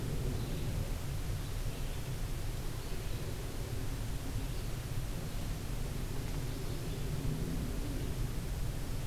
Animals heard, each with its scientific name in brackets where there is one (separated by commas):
Red-eyed Vireo (Vireo olivaceus)